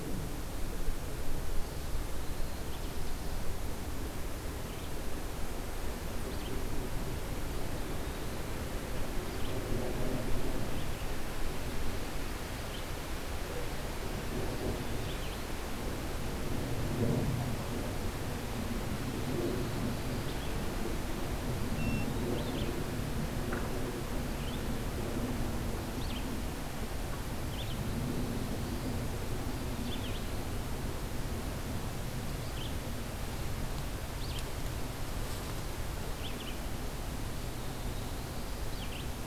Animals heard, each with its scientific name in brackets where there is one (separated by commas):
Eastern Wood-Pewee (Contopus virens), Red-eyed Vireo (Vireo olivaceus), Black-throated Blue Warbler (Setophaga caerulescens)